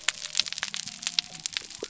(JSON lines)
{"label": "biophony", "recorder": "SoundTrap 300"}